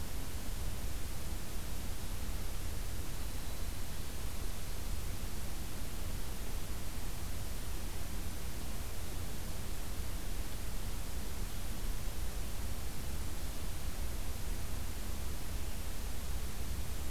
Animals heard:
forest ambience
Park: Acadia National Park